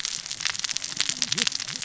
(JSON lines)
{"label": "biophony, cascading saw", "recorder": "SoundTrap 600 or HydroMoth"}